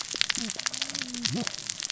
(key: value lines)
label: biophony, cascading saw
recorder: SoundTrap 600 or HydroMoth